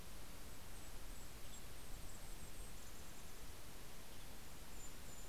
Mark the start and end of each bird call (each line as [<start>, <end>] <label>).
[0.00, 5.28] Golden-crowned Kinglet (Regulus satrapa)
[0.50, 5.28] Western Tanager (Piranga ludoviciana)